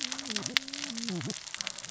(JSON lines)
{"label": "biophony, cascading saw", "recorder": "SoundTrap 600 or HydroMoth"}